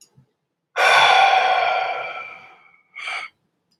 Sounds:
Sigh